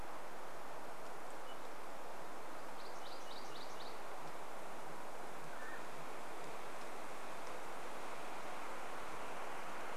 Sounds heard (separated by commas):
unidentified sound, Mountain Quail call, MacGillivray's Warbler song